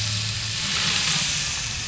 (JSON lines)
{"label": "anthrophony, boat engine", "recorder": "SoundTrap 500"}